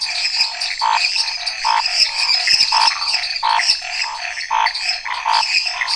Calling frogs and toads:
Chaco tree frog, lesser tree frog, dwarf tree frog, Scinax fuscovarius, menwig frog, Pithecopus azureus, waxy monkey tree frog

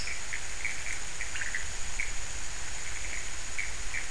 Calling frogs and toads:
pointedbelly frog, Pithecopus azureus

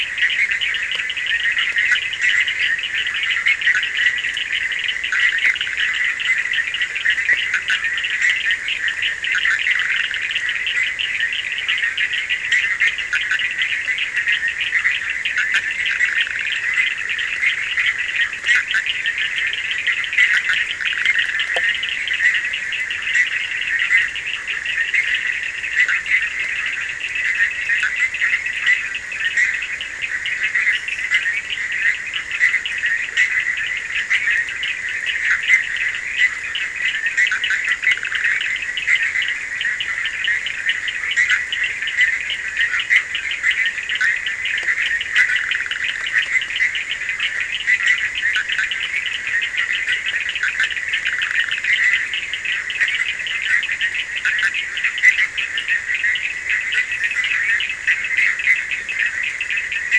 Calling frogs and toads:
Bischoff's tree frog, Cochran's lime tree frog

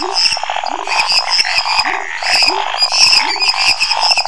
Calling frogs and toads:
lesser tree frog, pepper frog, Scinax fuscovarius

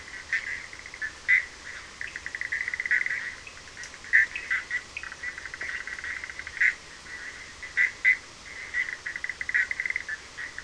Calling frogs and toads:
Bischoff's tree frog, Cochran's lime tree frog

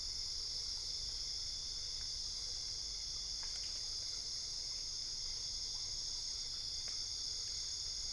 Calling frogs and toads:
Dendropsophus cruzi

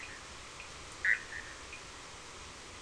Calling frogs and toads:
Bischoff's tree frog

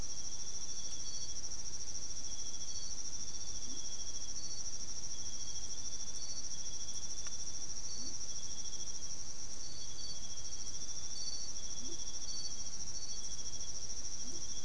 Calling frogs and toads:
Leptodactylus latrans

